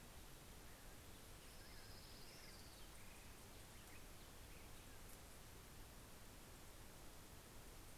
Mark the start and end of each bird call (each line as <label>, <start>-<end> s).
American Robin (Turdus migratorius), 0.0-5.4 s
Orange-crowned Warbler (Leiothlypis celata), 1.3-3.4 s